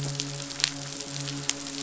{"label": "biophony, midshipman", "recorder": "SoundTrap 500"}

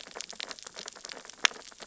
{"label": "biophony, sea urchins (Echinidae)", "recorder": "SoundTrap 600 or HydroMoth"}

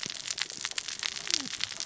{"label": "biophony, cascading saw", "recorder": "SoundTrap 600 or HydroMoth"}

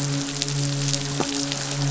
{"label": "biophony, midshipman", "recorder": "SoundTrap 500"}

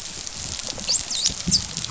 {"label": "biophony, dolphin", "recorder": "SoundTrap 500"}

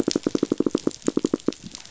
{"label": "biophony, knock", "recorder": "SoundTrap 500"}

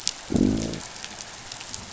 {"label": "biophony, growl", "recorder": "SoundTrap 500"}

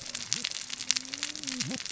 {"label": "biophony, cascading saw", "recorder": "SoundTrap 600 or HydroMoth"}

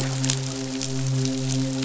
{"label": "biophony, midshipman", "recorder": "SoundTrap 500"}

